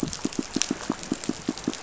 {"label": "biophony, pulse", "recorder": "SoundTrap 500"}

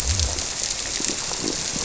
{"label": "biophony", "recorder": "SoundTrap 300"}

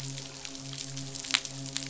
{"label": "biophony, midshipman", "recorder": "SoundTrap 500"}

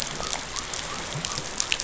{"label": "biophony", "recorder": "SoundTrap 500"}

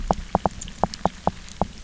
{"label": "biophony, knock", "recorder": "SoundTrap 300"}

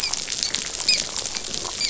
{"label": "biophony, dolphin", "recorder": "SoundTrap 500"}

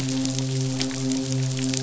{"label": "biophony, midshipman", "recorder": "SoundTrap 500"}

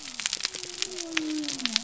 {"label": "biophony", "recorder": "SoundTrap 300"}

